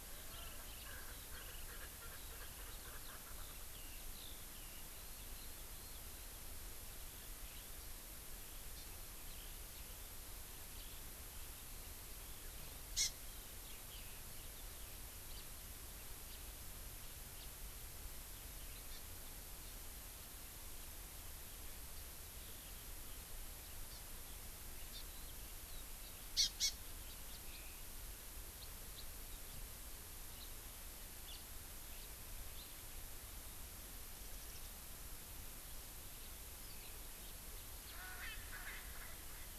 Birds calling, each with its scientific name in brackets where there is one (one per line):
Hawaii Amakihi (Chlorodrepanis virens)
Warbling White-eye (Zosterops japonicus)
House Finch (Haemorhous mexicanus)
Erckel's Francolin (Pternistis erckelii)